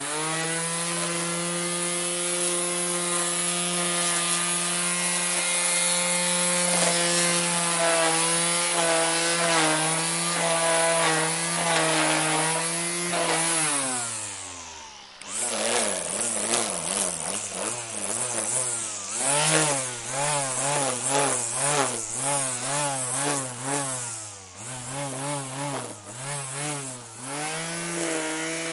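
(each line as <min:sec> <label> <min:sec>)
0:00.0 A grass trimmer whizzes continuously outdoors. 0:13.7
0:13.8 The grass trimmer motor whizzes noisily and then gradually turns off. 0:15.2
0:15.3 Grass trimmer is repeatedly turned on and off, producing a whizzing sound. 0:28.7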